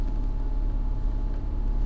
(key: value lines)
label: anthrophony, boat engine
recorder: SoundTrap 300